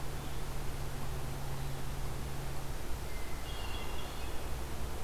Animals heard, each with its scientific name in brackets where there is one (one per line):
Hermit Thrush (Catharus guttatus)